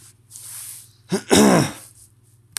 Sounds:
Throat clearing